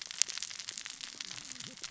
{"label": "biophony, cascading saw", "recorder": "SoundTrap 600 or HydroMoth"}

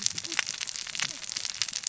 {"label": "biophony, cascading saw", "recorder": "SoundTrap 600 or HydroMoth"}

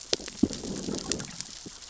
{"label": "biophony, growl", "recorder": "SoundTrap 600 or HydroMoth"}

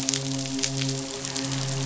{"label": "biophony, midshipman", "recorder": "SoundTrap 500"}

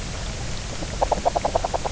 {"label": "biophony, knock croak", "recorder": "SoundTrap 300"}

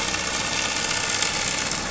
{"label": "anthrophony, boat engine", "recorder": "SoundTrap 500"}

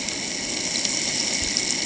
{"label": "ambient", "recorder": "HydroMoth"}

